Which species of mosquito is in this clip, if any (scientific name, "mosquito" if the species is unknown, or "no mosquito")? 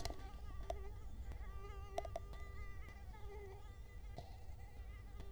Culex quinquefasciatus